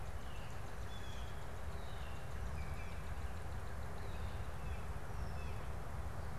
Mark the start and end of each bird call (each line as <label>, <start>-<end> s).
Blue Jay (Cyanocitta cristata), 0.0-1.8 s
Northern Cardinal (Cardinalis cardinalis), 1.0-4.4 s
Blue Jay (Cyanocitta cristata), 4.4-5.9 s